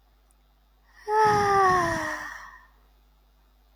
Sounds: Sigh